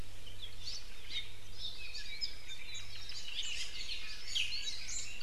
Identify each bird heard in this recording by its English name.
Apapane, Hawaii Creeper, Iiwi